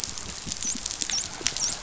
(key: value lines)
label: biophony, dolphin
recorder: SoundTrap 500